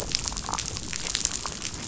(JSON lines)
{"label": "biophony, damselfish", "recorder": "SoundTrap 500"}